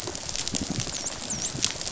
{"label": "biophony, dolphin", "recorder": "SoundTrap 500"}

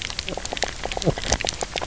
{"label": "biophony, knock croak", "recorder": "SoundTrap 300"}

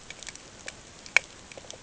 {"label": "ambient", "recorder": "HydroMoth"}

